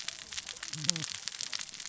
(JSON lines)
{"label": "biophony, cascading saw", "recorder": "SoundTrap 600 or HydroMoth"}